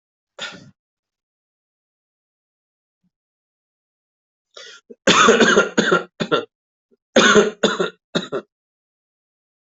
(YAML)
expert_labels:
- quality: ok
  cough_type: dry
  dyspnea: false
  wheezing: false
  stridor: false
  choking: false
  congestion: false
  nothing: true
  diagnosis: COVID-19
  severity: mild
- quality: good
  cough_type: dry
  dyspnea: false
  wheezing: false
  stridor: false
  choking: false
  congestion: false
  nothing: true
  diagnosis: upper respiratory tract infection
  severity: mild
- quality: good
  cough_type: unknown
  dyspnea: false
  wheezing: false
  stridor: false
  choking: false
  congestion: false
  nothing: true
  diagnosis: upper respiratory tract infection
  severity: mild
- quality: good
  cough_type: wet
  dyspnea: false
  wheezing: false
  stridor: false
  choking: false
  congestion: false
  nothing: true
  diagnosis: lower respiratory tract infection
  severity: mild
age: 39
gender: male
respiratory_condition: false
fever_muscle_pain: false
status: healthy